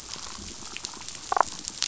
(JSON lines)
{"label": "biophony, damselfish", "recorder": "SoundTrap 500"}
{"label": "biophony", "recorder": "SoundTrap 500"}